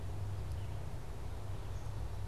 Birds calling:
Black-capped Chickadee (Poecile atricapillus), Red-eyed Vireo (Vireo olivaceus)

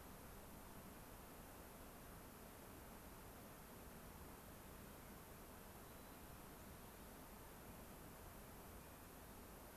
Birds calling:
White-crowned Sparrow (Zonotrichia leucophrys)

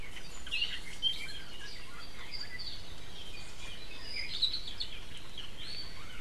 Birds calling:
Iiwi (Drepanis coccinea)

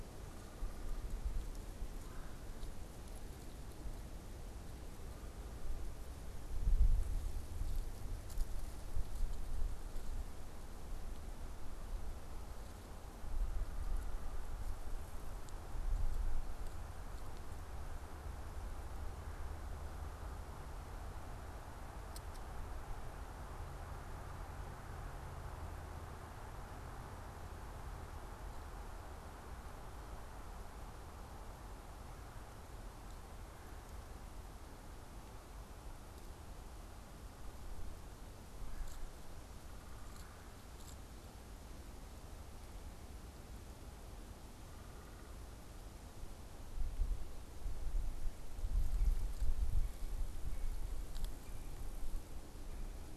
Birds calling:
Red-bellied Woodpecker (Melanerpes carolinus), unidentified bird

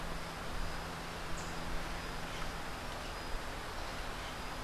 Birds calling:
Rufous-capped Warbler (Basileuterus rufifrons), Crimson-fronted Parakeet (Psittacara finschi)

